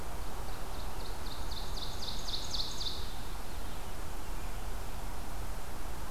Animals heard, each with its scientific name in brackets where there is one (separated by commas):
Red-eyed Vireo (Vireo olivaceus), Ovenbird (Seiurus aurocapilla)